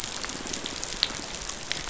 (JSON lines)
{"label": "biophony, pulse", "recorder": "SoundTrap 500"}